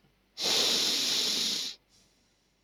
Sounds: Sniff